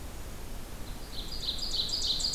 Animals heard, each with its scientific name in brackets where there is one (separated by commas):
Ovenbird (Seiurus aurocapilla), Golden-crowned Kinglet (Regulus satrapa)